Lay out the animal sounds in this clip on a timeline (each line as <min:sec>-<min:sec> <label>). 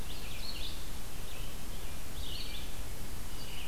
0:00.0-0:03.7 Red-eyed Vireo (Vireo olivaceus)